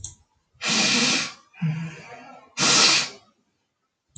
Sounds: Sniff